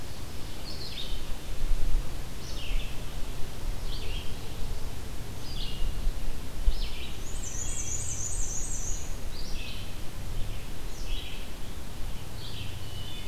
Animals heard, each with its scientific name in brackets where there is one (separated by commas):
Red-eyed Vireo (Vireo olivaceus), Black-and-white Warbler (Mniotilta varia), Wood Thrush (Hylocichla mustelina), Ovenbird (Seiurus aurocapilla)